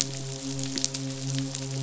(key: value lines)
label: biophony, midshipman
recorder: SoundTrap 500